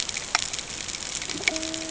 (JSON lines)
{"label": "ambient", "recorder": "HydroMoth"}